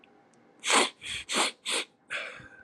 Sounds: Sniff